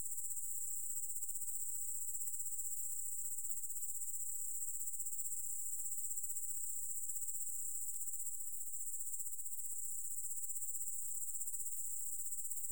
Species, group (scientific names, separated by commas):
Tettigonia cantans, Orthoptera